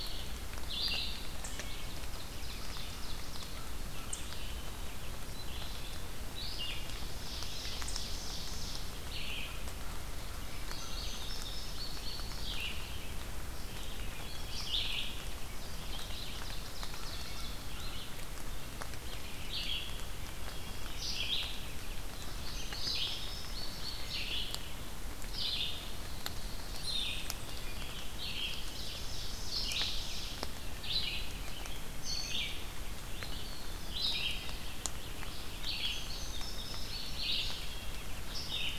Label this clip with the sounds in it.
Red-eyed Vireo, Ovenbird, Wood Thrush, Indigo Bunting, Eastern Wood-Pewee